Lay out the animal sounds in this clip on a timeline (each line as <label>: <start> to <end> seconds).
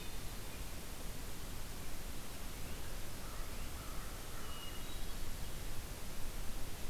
American Crow (Corvus brachyrhynchos): 3.1 to 4.7 seconds
Hermit Thrush (Catharus guttatus): 4.4 to 5.3 seconds